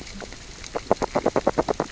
{"label": "biophony, grazing", "recorder": "SoundTrap 600 or HydroMoth"}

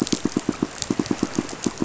{"label": "biophony, pulse", "recorder": "SoundTrap 500"}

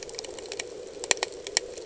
{"label": "anthrophony, boat engine", "recorder": "HydroMoth"}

